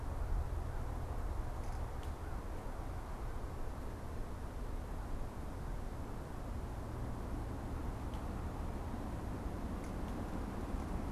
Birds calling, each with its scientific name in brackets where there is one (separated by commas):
American Crow (Corvus brachyrhynchos)